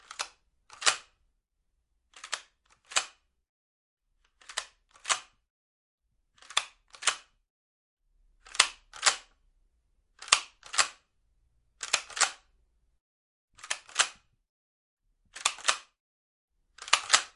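A shotgun is cocking rhythmically nearby. 0:00.2 - 0:01.1
A shotgun is cocking rhythmically nearby. 0:02.2 - 0:03.1
A shotgun is cocking rhythmically nearby. 0:04.4 - 0:05.3
A shotgun is cocking rhythmically nearby. 0:06.5 - 0:07.2
A shotgun is cocking rhythmically nearby. 0:08.5 - 0:09.2
A shotgun is cocking rhythmically nearby. 0:10.2 - 0:10.9
A shotgun is cocking rhythmically nearby. 0:11.8 - 0:12.4
A shotgun is cocking rhythmically nearby. 0:13.7 - 0:14.1
A shotgun is cocking rhythmically nearby. 0:15.4 - 0:15.8
A shotgun is cocking rhythmically nearby. 0:16.8 - 0:17.3

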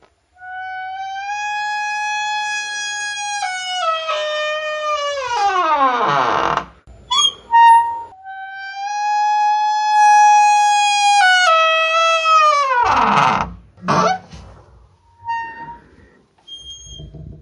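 A very squeaky door makes a creepy sound. 0:00.0 - 0:17.4

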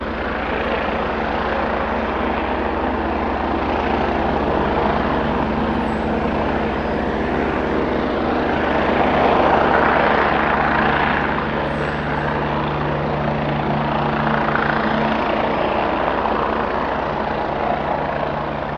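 A helicopter is flying overhead. 0:00.0 - 0:18.8

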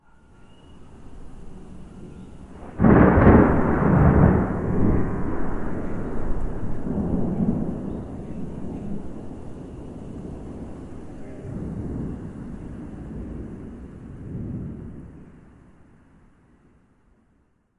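Rain falling gently in the background. 0:00.0 - 0:17.8
Thunder rumbling in the distance. 0:02.7 - 0:09.1
Very distant, muffled thunder with echo. 0:11.4 - 0:12.2
Very distant, muffled thunder with echo. 0:14.2 - 0:14.8

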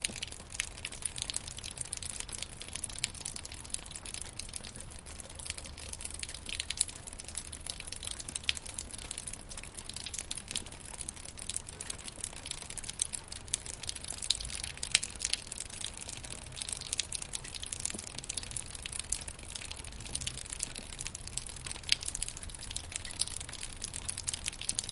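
Steady rain drips onto a rubber mat. 0:00.0 - 0:24.9

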